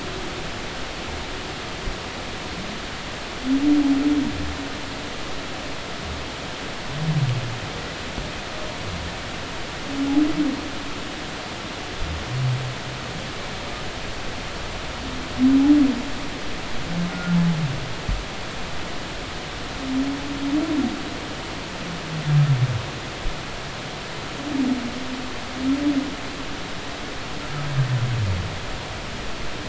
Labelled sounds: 17.1	17.4	humpback whale, 1.4 to 1.5 kHz

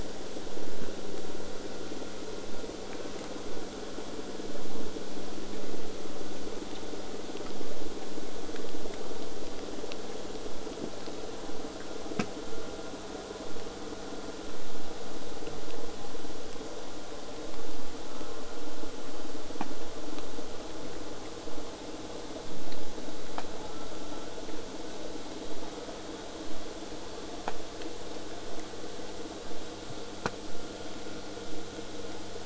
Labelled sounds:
2.9	3.3	killer whale, southern resident, J pod, call S04, 0.58 to 1.7 kHz

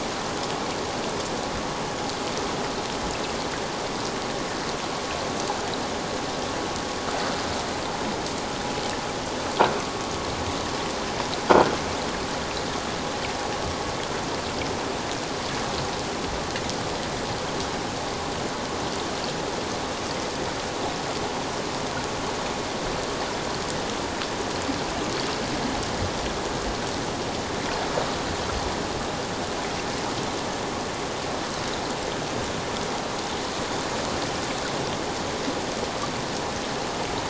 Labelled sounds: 11.5	11.7	croaking sound likely from a nearby submerged object, 1.3 to 1.7 kHz

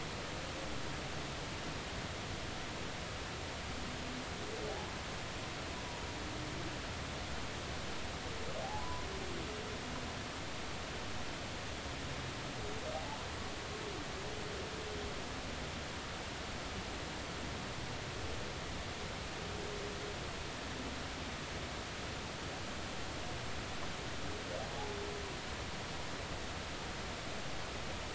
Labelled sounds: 8.8	9.1	humpback whale, 0.93 to 1.1 kHz
24.7	25.0	humpback whale, 0.80 to 0.96 kHz

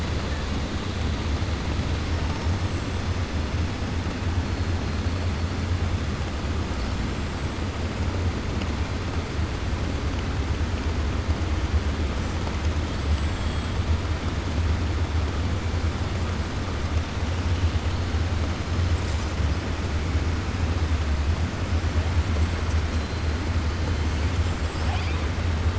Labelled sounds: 12.9	13.7	killer whale, 7.5 to 7.9 kHz

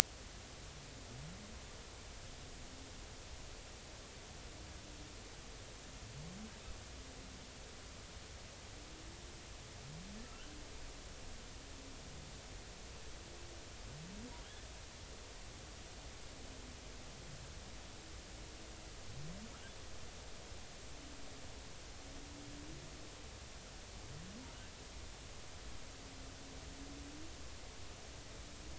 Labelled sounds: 10.2	10.6	humpback whale, 1.2 to 1.6 kHz

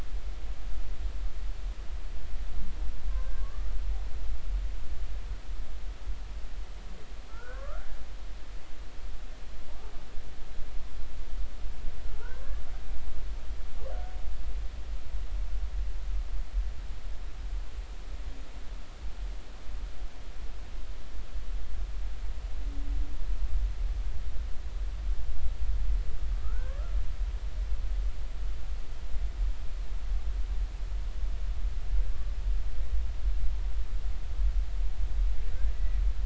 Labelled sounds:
3.1	3.7	humpback whale, 1.1 to 1.6 kHz
7.3	7.9	humpback whale, 1.0 to 1.8 kHz
12.1	12.6	humpback whale, 0.83 to 1.8 kHz
26.4	26.8	humpback whale, 0.86 to 1.8 kHz
35.7	36.0	humpback whale, 1.9 to 2.0 kHz

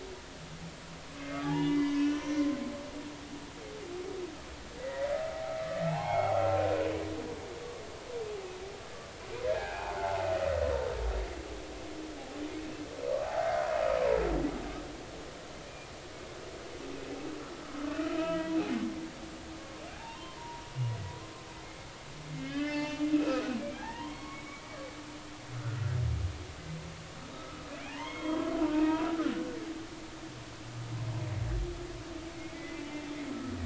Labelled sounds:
1.4	2.5	humpback whale, 0.80 to 6.0 kHz
4.8	5.1	humpback whale, 1.8 to 2.0 kHz
5.9	6.4	humpback whale, 0.80 to 3.4 kHz
9.5	10.0	humpback whale, 0.80 to 2.6 kHz
13.2	13.5	humpback whale, 0.80 to 0.90 kHz
17.9	18.6	humpback whale, 0.93 to 3.1 kHz
19.9	20.7	humpback whale, 0.80 to 3.2 kHz
22.3	23.4	humpback whale, 0.83 to 5.2 kHz
23.7	25.8	humpback whale, 0.80 to 4.6 kHz
27.3	28.5	humpback whale, 0.80 to 3.3 kHz
28.7	29.1	humpback whale, 2.4 to 2.7 kHz
32.4	32.9	humpback whale, 1.9 to 2.3 kHz

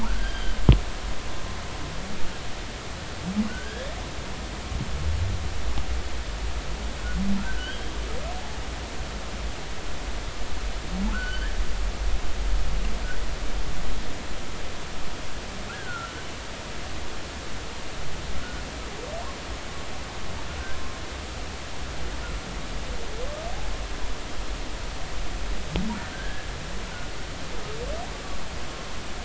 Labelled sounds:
0.0	0.6	humpback whale, 1.3 to 4.8 kHz
3.5	3.9	humpback whale, 1.4 to 3.4 kHz
7.4	7.9	humpback whale, 1.4 to 3.3 kHz
11.1	11.5	humpback whale, 1.2 to 4.6 kHz
15.7	16.1	humpback whale, 1.3 to 1.7 kHz
26.1	26.5	humpback whale, 1.5 to 1.8 kHz

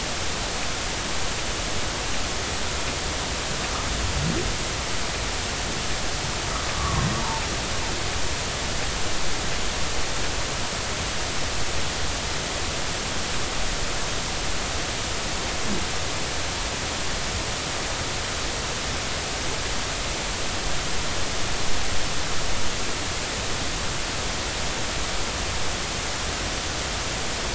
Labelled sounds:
6.8	7.4	humpback whale, 0.86 to 1.3 kHz

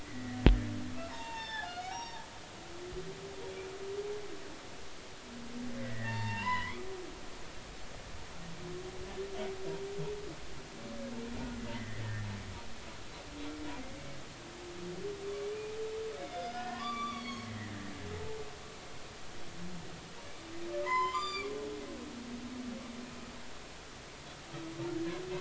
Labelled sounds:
0.0	0.4	humpback whale, 1.7 to 2.1 kHz
1.1	2.2	humpback whale, 0.80 to 5.8 kHz
5.8	6.9	humpback whale, 0.83 to 3.7 kHz
11.7	12.3	humpback whale, 1.6 to 2.1 kHz
16.2	17.5	humpback whale, 0.93 to 5.9 kHz
18.1	18.4	humpback whale, 0.83 to 0.93 kHz
20.8	21.5	humpback whale, 0.90 to 7.3 kHz

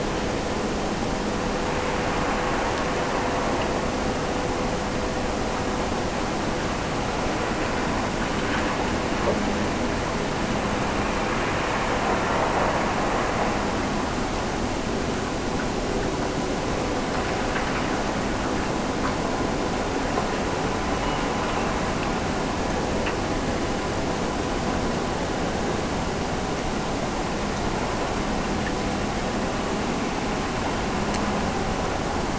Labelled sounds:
20.9	23.0	killer whale, Bigg's (transient), Gulf of Alaska transient, 1.5 to 3.0 kHz

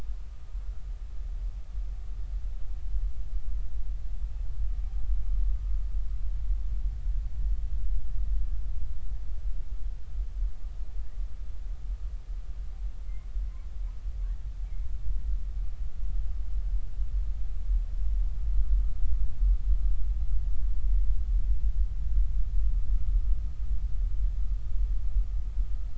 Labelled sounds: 13.0	13.3	humpback whale, 2.0 to 2.3 kHz

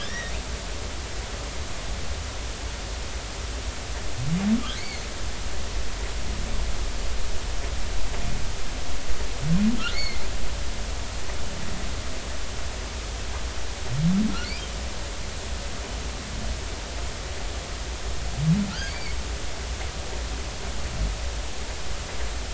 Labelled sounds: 0.0	0.3	humpback whale, 1.7 to 3.9 kHz
4.8	5.0	humpback whale, 2.0 to 4.6 kHz
9.9	10.2	humpback whale, 2.0 to 4.5 kHz
18.7	19.2	humpback whale, 1.3 to 4.7 kHz

